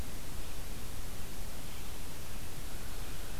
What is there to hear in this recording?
forest ambience